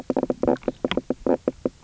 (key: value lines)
label: biophony, knock croak
recorder: SoundTrap 300